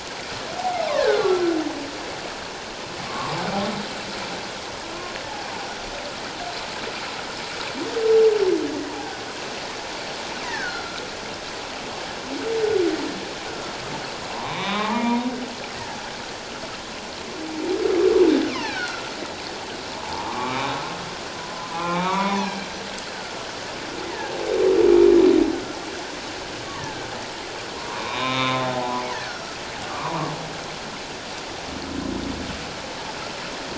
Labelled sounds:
0.8	1.4	humpback whale, 0.97 to 2.5 kHz
3.1	3.4	humpback whale, 0.81 to 1.2 kHz
10.4	11.0	humpback whale, 1.3 to 2.1 kHz
13.5	13.7	humpback whale, 1.3 to 1.5 kHz
14.3	15.3	humpback whale, 0.78 to 4.0 kHz
18.5	19.1	humpback whale, 1.3 to 4.5 kHz
19.9	20.7	humpback whale, 0.78 to 2.6 kHz
21.6	22.5	humpback whale, 0.78 to 2.6 kHz
24.0	24.3	humpback whale, 1.6 to 2.1 kHz
26.7	27.0	humpback whale, 1.5 to 1.9 kHz
27.7	30.3	humpback whale, 0.78 to 3.9 kHz

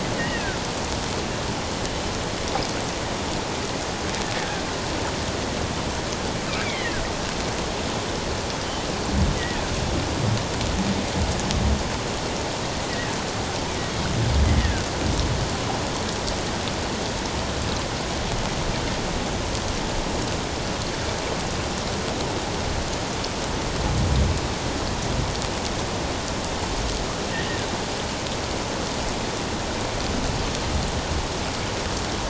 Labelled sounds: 0.2	0.6	killer whale, offshore, 1.3 to 3.0 kHz
6.6	7.0	killer whale, offshore, 1.4 to 2.4 kHz
9.4	9.6	killer whale, offshore, 1.7 to 2.0 kHz
12.9	13.2	killer whale, offshore, 1.7 to 2.0 kHz
14.4	14.8	killer whale, offshore, 1.4 to 2.1 kHz

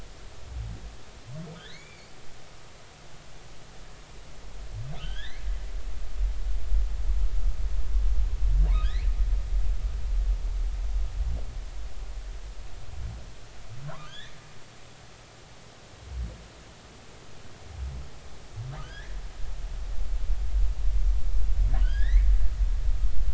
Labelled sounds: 1.5	2.2	humpback whale, 1.4 to 4.8 kHz
5.0	5.5	humpback whale, 1.4 to 4.3 kHz
8.7	9.1	humpback whale, 1.5 to 2.6 kHz
13.9	14.4	humpback whale, 0.96 to 3.9 kHz
18.8	19.2	humpback whale, 1.2 to 3.7 kHz
21.8	22.3	humpback whale, 1.4 to 3.4 kHz

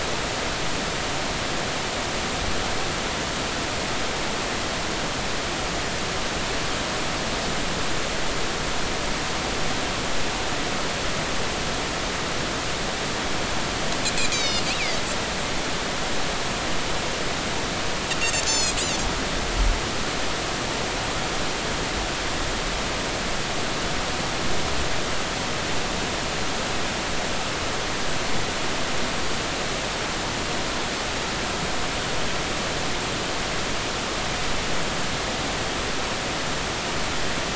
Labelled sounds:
14.3	15.0	Pacific white-sided dolphin, 1.9 to 6.4 kHz
18.5	18.8	Pacific white-sided dolphin, 2.4 to 7.2 kHz

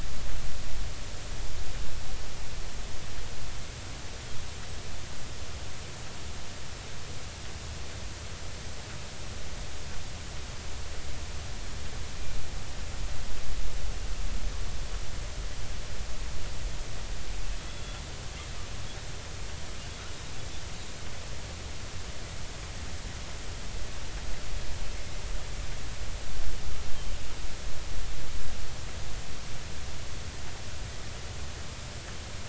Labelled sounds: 17.6	18.0	killer whale, Bigg's (transient), 3.3 to 3.5 kHz

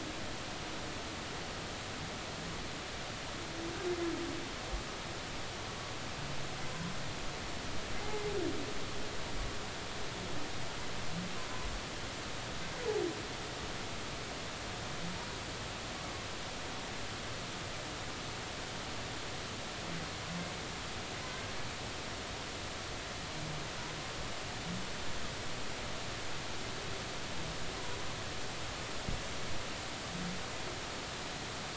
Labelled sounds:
6.7	6.9	humpback whale, 0.93 to 1.1 kHz

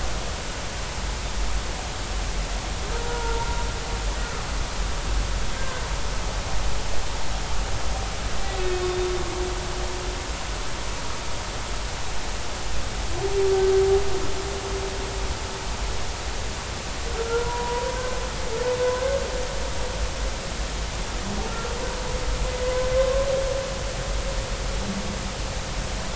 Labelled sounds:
3.0	3.5	humpback whale, 0.86 to 1.5 kHz
5.5	5.8	humpback whale, 1.5 to 1.6 kHz
17.2	18.1	humpback whale, 0.90 to 1.5 kHz
22.6	22.9	humpback whale, 0.96 to 1.1 kHz

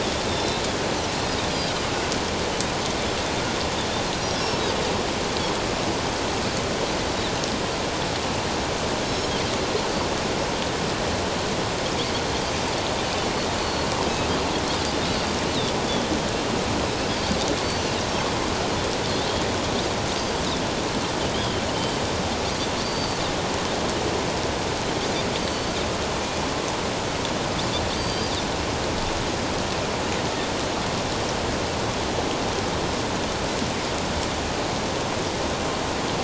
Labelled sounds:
0.3	0.6	Pacific white-sided dolphin, 3.4 to 5.5 kHz
9.1	9.3	Pacific white-sided dolphin, 5.2 to 5.5 kHz
13.6	13.9	Pacific white-sided dolphin, 4.3 to 4.5 kHz
15.1	15.4	Pacific white-sided dolphin, 4.7 to 4.8 kHz
17.6	17.9	Pacific white-sided dolphin, 4.4 to 6.1 kHz
21.3	22.0	Pacific white-sided dolphin, 2.9 to 3.7 kHz
22.8	23.2	Pacific white-sided dolphin, 4.4 to 4.7 kHz
25.4	25.8	Pacific white-sided dolphin, 4.4 to 4.7 kHz
27.9	28.3	Pacific white-sided dolphin, 4.6 to 4.9 kHz

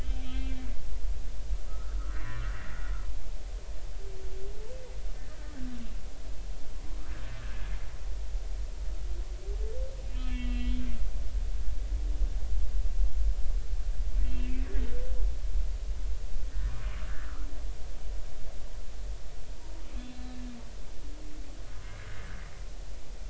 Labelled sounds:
0.0	0.7	humpback whale, 2.2 to 3.5 kHz
1.7	2.4	humpback whale, 1.1 to 2.0 kHz
7.4	7.7	humpback whale, 1.5 to 1.8 kHz
10.1	10.8	humpback whale, 1.9 to 3.3 kHz
14.2	14.5	humpback whale, 2.7 to 2.8 kHz
17.1	17.3	humpback whale, 1.3 to 1.9 kHz
20.1	20.4	humpback whale, 1.7 to 4.1 kHz

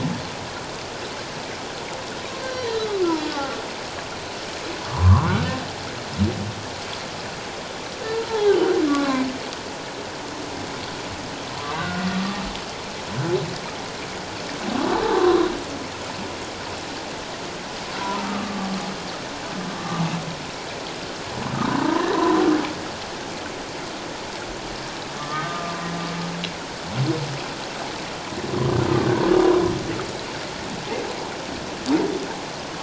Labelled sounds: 2.3	3.6	humpback whale, 1.1 to 4.8 kHz
4.9	5.6	humpback whale, 0.91 to 1.6 kHz
8.0	8.5	humpback whale, 0.78 to 4.2 kHz
8.9	9.3	humpback whale, 0.97 to 1.2 kHz
11.6	12.1	humpback whale, 0.88 to 1.6 kHz
15.0	15.4	humpback whale, 1.0 to 1.2 kHz
18.0	18.7	humpback whale, 0.88 to 1.3 kHz
21.5	22.4	humpback whale, 0.88 to 1.3 kHz
25.2	25.8	humpback whale, 1.1 to 1.9 kHz

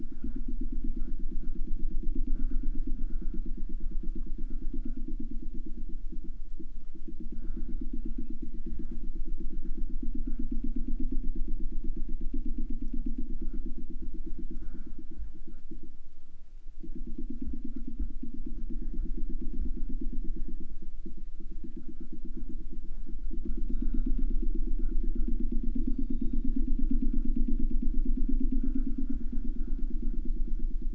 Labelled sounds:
7.3	9.2	killer whale, southern resident, J pod, call S01, 1.4 to 5.5 kHz
11.8	12.5	killer whale, 1.5 to 4.3 kHz
23.6	24.6	killer whale, southern resident, J pod, call S01, 1.7 to 4.2 kHz
25.7	26.7	killer whale, southern resident, J pod, call S01, 2.4 to 4.9 kHz

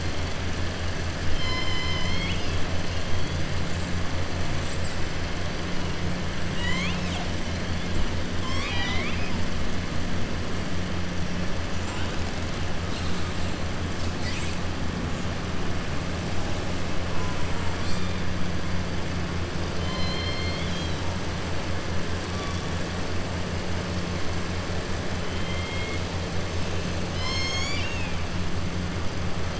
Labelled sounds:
1.3	2.6	killer whale, southern resident, 1.0 to 6.7 kHz
6.4	7.3	killer whale, southern resident, 1.0 to 7.9 kHz
8.3	9.3	killer whale, southern resident, 0.77 to 7.6 kHz
19.7	21.0	killer whale, southern resident, 2.0 to 7.3 kHz
27.0	28.2	killer whale, southern resident, 1.1 to 7.5 kHz

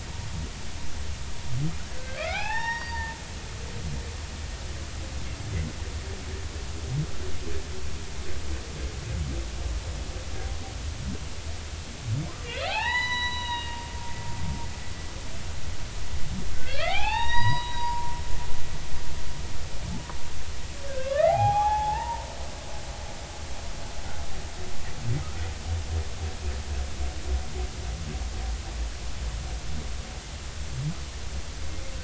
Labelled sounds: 2.0	3.1	humpback whale, 0.80 to 5.7 kHz
12.6	13.8	humpback whale, 0.80 to 5.9 kHz
16.5	18.1	humpback whale, 0.80 to 5.9 kHz
20.9	22.3	humpback whale, 0.80 to 3.5 kHz

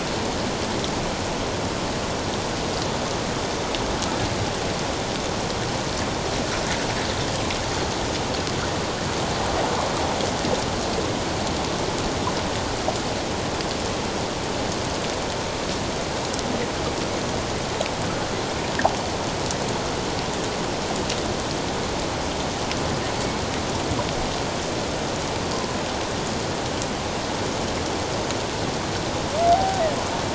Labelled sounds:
29.5	29.8	humpback whale, 0.78 to 0.81 kHz

